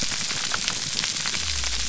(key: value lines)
label: biophony
recorder: SoundTrap 300